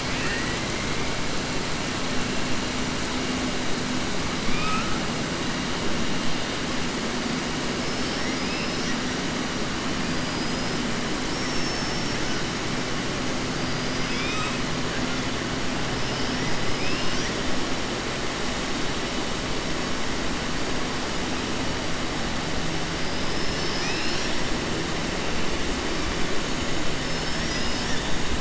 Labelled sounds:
0.0	0.6	killer whale, 1.3 to 3.5 kHz
4.4	4.9	killer whale, 1.2 to 4.5 kHz
7.8	9.0	killer whale, 4.3 to 6.2 kHz
13.6	14.6	killer whale, 1.3 to 5.9 kHz

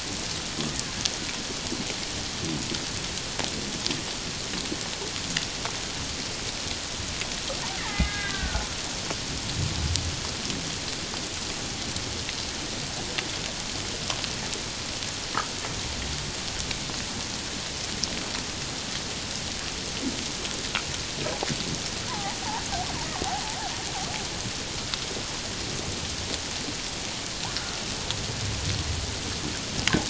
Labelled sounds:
7.8	8.7	killer whale, Bigg's (transient), 1.4 to 3.8 kHz
22.1	22.4	killer whale, Bigg's (transient), 0.78 to 1.1 kHz

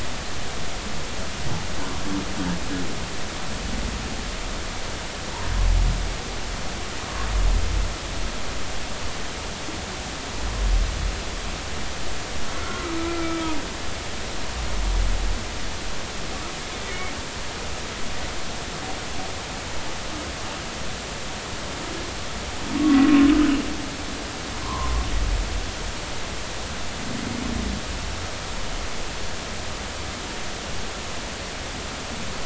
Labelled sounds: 12.5	13.4	humpback whale, 1.2 to 1.5 kHz
22.8	23.0	humpback whale, 1.1 to 1.2 kHz
24.6	24.9	humpback whale, 0.86 to 1.2 kHz

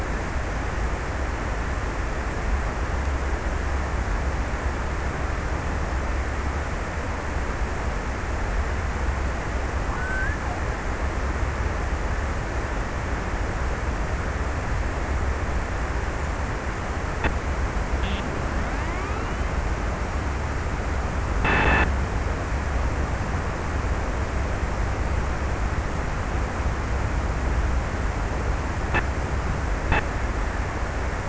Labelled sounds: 9.4	10.9	killer whale, Bigg's (transient), 0.84 to 1.9 kHz

